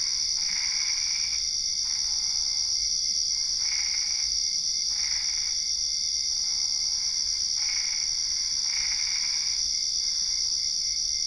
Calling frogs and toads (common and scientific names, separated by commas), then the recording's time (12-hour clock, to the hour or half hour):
Boana albopunctata
~9pm